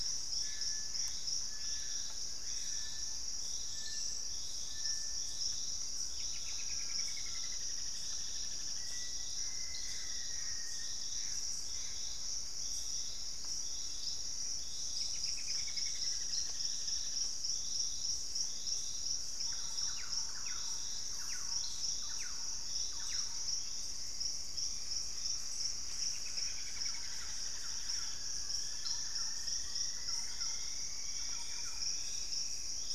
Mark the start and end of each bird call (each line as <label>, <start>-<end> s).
Gray Antbird (Cercomacra cinerascens), 0.0-1.5 s
Purple-throated Fruitcrow (Querula purpurata), 0.0-3.7 s
Little Tinamou (Crypturellus soui), 0.0-7.2 s
Screaming Piha (Lipaugus vociferans), 1.3-2.9 s
Collared Trogon (Trogon collaris), 5.6-10.9 s
Straight-billed Woodcreeper (Dendroplex picus), 5.9-9.5 s
Black-faced Antthrush (Formicarius analis), 8.7-11.1 s
Gray Antbird (Cercomacra cinerascens), 9.2-12.1 s
Straight-billed Woodcreeper (Dendroplex picus), 14.7-17.6 s
Thrush-like Wren (Campylorhynchus turdinus), 19.2-32.2 s
Cinnamon-rumped Foliage-gleaner (Philydor pyrrhodes), 24.5-32.7 s
Straight-billed Woodcreeper (Dendroplex picus), 25.6-28.4 s